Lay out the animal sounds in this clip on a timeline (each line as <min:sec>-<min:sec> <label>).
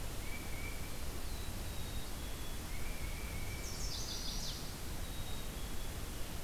0:00.0-0:01.1 Tufted Titmouse (Baeolophus bicolor)
0:00.7-0:01.9 Black-throated Blue Warbler (Setophaga caerulescens)
0:01.6-0:02.7 Black-capped Chickadee (Poecile atricapillus)
0:02.6-0:04.0 Tufted Titmouse (Baeolophus bicolor)
0:03.4-0:04.8 Chestnut-sided Warbler (Setophaga pensylvanica)
0:04.8-0:06.0 Black-capped Chickadee (Poecile atricapillus)